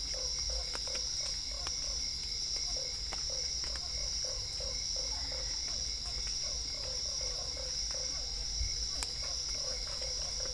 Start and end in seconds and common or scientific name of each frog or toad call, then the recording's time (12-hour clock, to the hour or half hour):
0.0	10.5	Usina tree frog
0.0	10.5	Physalaemus cuvieri
4.9	5.8	Boana albopunctata
7pm